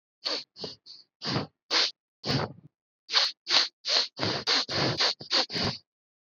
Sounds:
Sniff